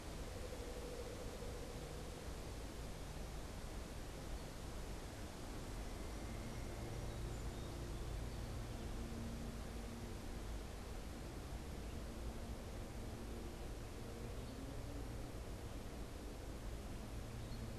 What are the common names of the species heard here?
Song Sparrow